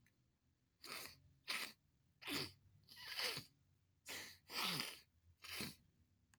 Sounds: Sniff